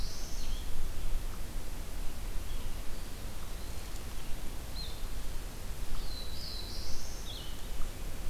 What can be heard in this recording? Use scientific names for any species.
Setophaga caerulescens, Vireo solitarius